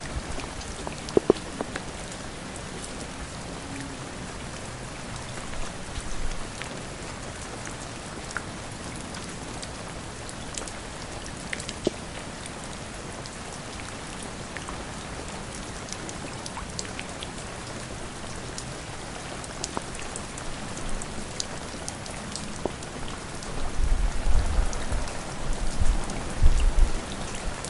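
Clear ambient rain falling at mid frequencies outdoors. 0:00.0 - 0:27.7
Close low-pitched pounding noise of raindrops. 0:01.1 - 0:01.3
A close, low-pitched pounding noise from raindrops. 0:11.8 - 0:12.0
Low-pitched ambient wind rumbling grows louder. 0:23.4 - 0:27.4

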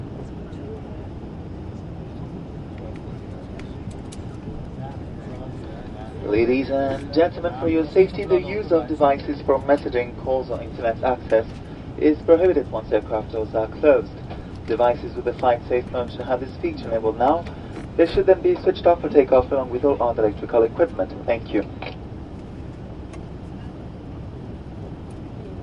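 Ambient humming noise inside a plane. 0:00.0 - 0:25.6
A person is speaking indistinctly. 0:00.5 - 0:01.1
A clicking noise. 0:03.5 - 0:04.2
Someone is speaking indistinctly in the distance. 0:04.3 - 0:09.8
A plane pilot is speaking through a loudspeaker. 0:06.2 - 0:22.0

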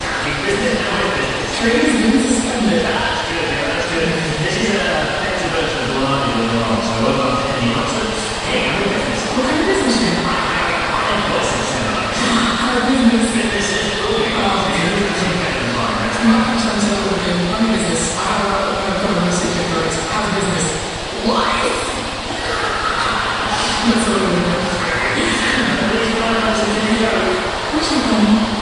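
A male voice transmitted through a radio echoes with an electric sound. 0:00.0 - 0:01.7
A female voice transmitted through a radio echoes, producing an electric-sounding effect. 0:01.7 - 0:03.0
A male voice transmitted through a radio echoes with an electric sound. 0:03.0 - 0:09.3
A female voice transmitted through a radio echoes, producing an electric-sounding effect. 0:09.4 - 0:10.3
A male voice transmitted through a radio echoes with an electric sound. 0:10.4 - 0:12.2
A female voice transmitted through a radio echoes, producing an electric-sounding effect. 0:12.2 - 0:13.5
A male voice transmitted through a radio echoes with an electric sound. 0:13.5 - 0:16.1
A female voice transmitted through a radio echoes, producing an electric-sounding effect. 0:16.2 - 0:28.6

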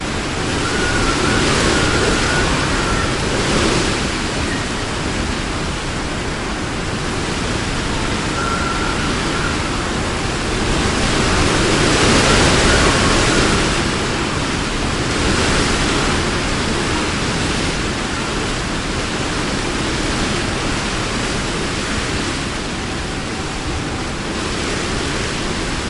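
Wind is blowing. 0:00.1 - 0:25.9
Wind whistling. 0:00.4 - 0:04.7
Wind intensifies. 0:09.7 - 0:14.4

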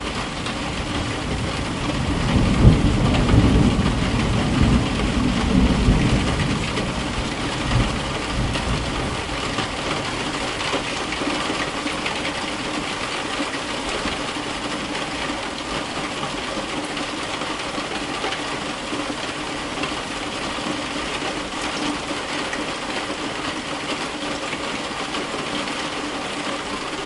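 Rain drums consistently on a roof. 0:00.0 - 0:27.1
Thunder rumbles unevenly. 0:00.8 - 0:10.9

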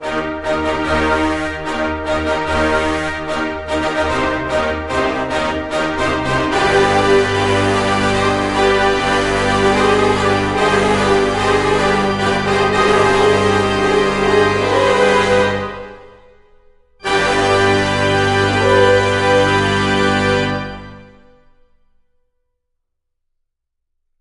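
An orchestra of woodwind instruments playing a loud melody. 0:00.0 - 0:16.3
An orchestra of woodwind instruments playing a loud melody. 0:16.9 - 0:22.9

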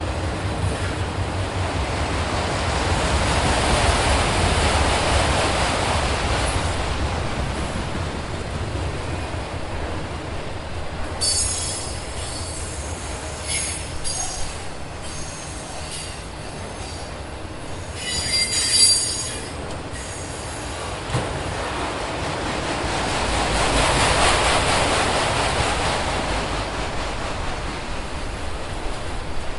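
A train passing by. 0:00.1 - 0:09.7
Wheel squeals from trains moving slowly. 0:11.2 - 0:19.4
A train with distinct wagons approaches and then departs. 0:21.0 - 0:29.6

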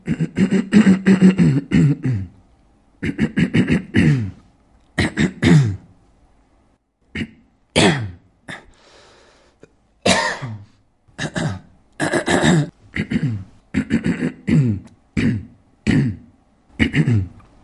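Several clear throat-clearing sounds in quick succession. 0:00.0 - 0:02.4
Several clear throat-clearing sounds occur in quick succession with a pause. 0:03.0 - 0:05.9
An initial unsuccessful throat clearing attempt followed by a strong clearing sound and a final successful throat clear. 0:07.1 - 0:08.7
Brief breath intake followed by a cough and two throat clears. 0:09.4 - 0:11.7
Several irregular throat-clearing sounds vary in timing and intensity. 0:11.9 - 0:17.6

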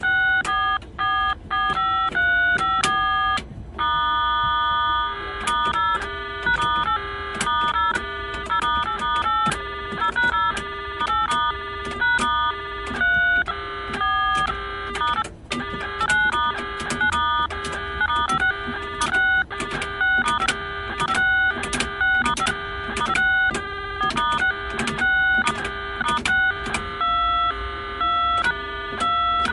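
Repeated retro beeping sounds. 0:00.0 - 0:29.5
Metallic clicking sounds of telephone keys. 0:00.4 - 0:00.9
A metallic key is pressed. 0:02.7 - 0:03.1
Repeated metallic thumping sound of old telephone keys being pressed. 0:07.4 - 0:29.5

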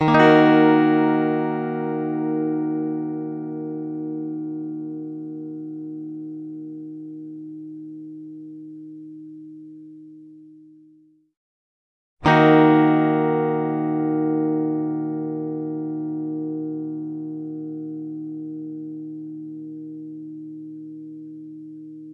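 An electric guitar plays a clean, bright, and crisp chord. 0:00.0 - 0:02.8
An electric guitar plays a clean chord twice with a short pause in between. 0:00.0 - 0:22.1

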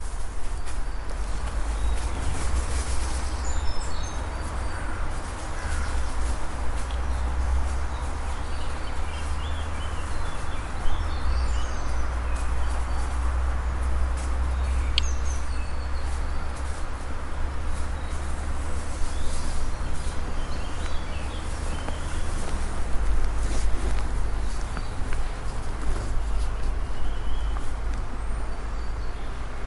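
Walking on grass with passing cars and tweeting birds in the background. 0:00.0 - 0:29.7

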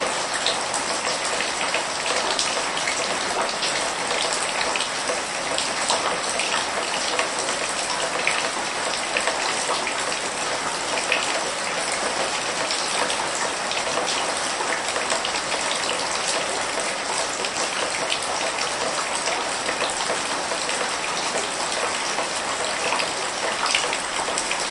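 Heavy rain falling into a bucket of water. 0:00.2 - 0:24.7

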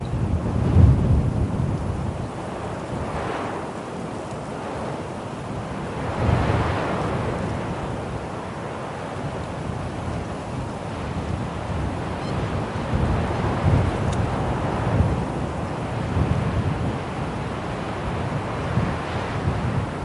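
Wind blowing steadily at medium volume with occasional small peaks. 0:00.0 - 0:20.0
Bird tweeting, with one loud tweet followed by several quiet tweets. 0:12.2 - 0:14.2

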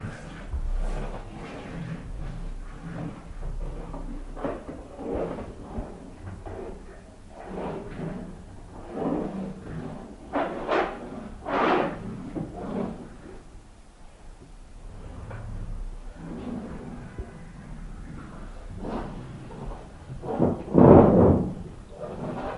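A vacuum hums steadily in the background. 0:00.0 - 0:22.6
A chair scrapes and rubs against the floor. 0:03.4 - 0:13.4
A chair scrapes and rubs against the floor. 0:18.7 - 0:22.6

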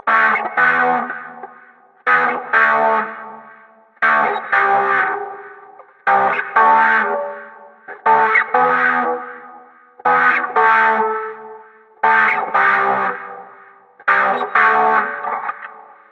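An electric guitar is playing with reverb. 0:00.0 - 0:16.1

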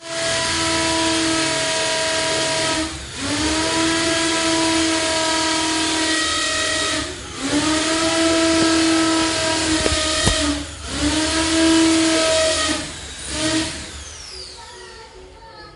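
A drill is operating. 0:00.0 - 0:03.0
A drill is operating and reaching its limits. 0:03.2 - 0:07.1
A drill is drilling and then abruptly stops. 0:07.4 - 0:10.7
A drill is operating. 0:10.9 - 0:13.8

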